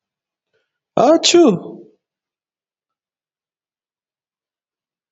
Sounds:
Sneeze